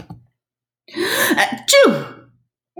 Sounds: Sneeze